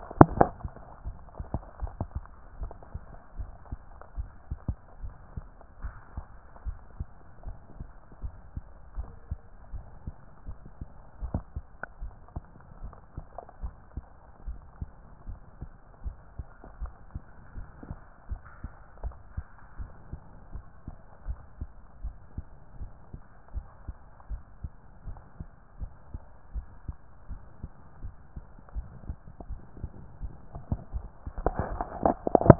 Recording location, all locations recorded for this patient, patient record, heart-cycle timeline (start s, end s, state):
mitral valve (MV)
pulmonary valve (PV)+tricuspid valve (TV)+mitral valve (MV)
#Age: nan
#Sex: Female
#Height: nan
#Weight: nan
#Pregnancy status: True
#Murmur: Absent
#Murmur locations: nan
#Most audible location: nan
#Systolic murmur timing: nan
#Systolic murmur shape: nan
#Systolic murmur grading: nan
#Systolic murmur pitch: nan
#Systolic murmur quality: nan
#Diastolic murmur timing: nan
#Diastolic murmur shape: nan
#Diastolic murmur grading: nan
#Diastolic murmur pitch: nan
#Diastolic murmur quality: nan
#Outcome: Abnormal
#Campaign: 2014 screening campaign
0.00	2.39	unannotated
2.39	2.58	diastole
2.58	2.72	S1
2.72	2.92	systole
2.92	3.02	S2
3.02	3.38	diastole
3.38	3.50	S1
3.50	3.70	systole
3.70	3.80	S2
3.80	4.16	diastole
4.16	4.28	S1
4.28	4.50	systole
4.50	4.60	S2
4.60	5.02	diastole
5.02	5.14	S1
5.14	5.36	systole
5.36	5.44	S2
5.44	5.82	diastole
5.82	5.94	S1
5.94	6.14	systole
6.14	6.24	S2
6.24	6.66	diastole
6.66	6.78	S1
6.78	6.98	systole
6.98	7.08	S2
7.08	7.46	diastole
7.46	7.58	S1
7.58	7.76	systole
7.76	7.88	S2
7.88	8.22	diastole
8.22	8.34	S1
8.34	8.54	systole
8.54	8.62	S2
8.62	8.96	diastole
8.96	9.08	S1
9.08	9.30	systole
9.30	9.38	S2
9.38	9.72	diastole
9.72	9.84	S1
9.84	10.06	systole
10.06	10.16	S2
10.16	10.46	diastole
10.46	10.56	S1
10.56	10.78	systole
10.78	10.86	S2
10.86	11.22	diastole
11.22	11.36	S1
11.36	11.56	systole
11.56	11.64	S2
11.64	12.00	diastole
12.00	12.12	S1
12.12	12.34	systole
12.34	12.44	S2
12.44	12.82	diastole
12.82	12.94	S1
12.94	13.16	systole
13.16	13.26	S2
13.26	13.62	diastole
13.62	13.72	S1
13.72	13.94	systole
13.94	14.04	S2
14.04	14.46	diastole
14.46	14.58	S1
14.58	14.80	systole
14.80	14.90	S2
14.90	15.28	diastole
15.28	15.40	S1
15.40	15.60	systole
15.60	15.70	S2
15.70	16.04	diastole
16.04	16.16	S1
16.16	16.36	systole
16.36	16.46	S2
16.46	16.80	diastole
16.80	16.92	S1
16.92	17.14	systole
17.14	17.22	S2
17.22	17.56	diastole
17.56	17.68	S1
17.68	17.88	systole
17.88	17.98	S2
17.98	18.30	diastole
18.30	18.40	S1
18.40	18.62	systole
18.62	18.70	S2
18.70	19.02	diastole
19.02	19.14	S1
19.14	19.36	systole
19.36	19.46	S2
19.46	19.78	diastole
19.78	19.90	S1
19.90	20.10	systole
20.10	20.20	S2
20.20	20.52	diastole
20.52	20.64	S1
20.64	20.86	systole
20.86	20.94	S2
20.94	21.26	diastole
21.26	21.38	S1
21.38	21.60	systole
21.60	21.68	S2
21.68	22.02	diastole
22.02	22.16	S1
22.16	22.36	systole
22.36	22.46	S2
22.46	22.78	diastole
22.78	22.90	S1
22.90	23.12	systole
23.12	23.22	S2
23.22	23.54	diastole
23.54	23.66	S1
23.66	23.86	systole
23.86	23.94	S2
23.94	24.30	diastole
24.30	24.42	S1
24.42	24.62	systole
24.62	24.72	S2
24.72	25.06	diastole
25.06	25.18	S1
25.18	25.38	systole
25.38	25.48	S2
25.48	25.80	diastole
25.80	25.92	S1
25.92	26.12	systole
26.12	26.20	S2
26.20	26.54	diastole
26.54	26.66	S1
26.66	26.86	systole
26.86	26.96	S2
26.96	27.30	diastole
27.30	27.42	S1
27.42	27.62	systole
27.62	27.70	S2
27.70	28.02	diastole
28.02	28.12	S1
28.12	28.34	systole
28.34	28.44	S2
28.44	28.74	diastole
28.74	28.88	S1
28.88	29.06	systole
29.06	29.18	S2
29.18	29.50	diastole
29.50	29.62	S1
29.62	29.80	systole
29.80	29.90	S2
29.90	30.22	diastole
30.22	32.59	unannotated